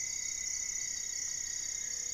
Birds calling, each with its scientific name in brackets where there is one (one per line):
Ruddy Pigeon (Patagioenas subvinacea)
Rufous-fronted Antthrush (Formicarius rufifrons)
Black-faced Antthrush (Formicarius analis)
Striped Woodcreeper (Xiphorhynchus obsoletus)